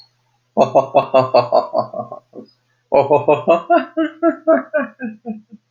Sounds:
Sigh